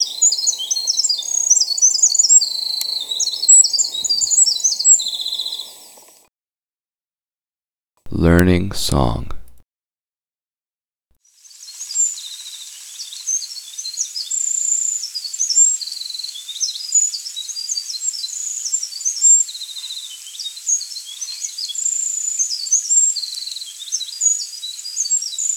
Can birds be heard in the background?
yes